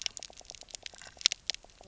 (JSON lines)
{"label": "biophony, pulse", "recorder": "SoundTrap 300"}
{"label": "biophony, knock croak", "recorder": "SoundTrap 300"}